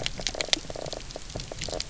{"label": "biophony, knock croak", "recorder": "SoundTrap 300"}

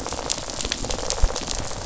{"label": "biophony, rattle response", "recorder": "SoundTrap 500"}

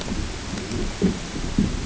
{"label": "ambient", "recorder": "HydroMoth"}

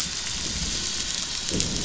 {"label": "anthrophony, boat engine", "recorder": "SoundTrap 500"}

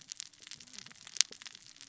{"label": "biophony, cascading saw", "recorder": "SoundTrap 600 or HydroMoth"}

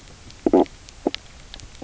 {"label": "biophony, knock croak", "recorder": "SoundTrap 300"}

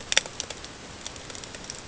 {"label": "ambient", "recorder": "HydroMoth"}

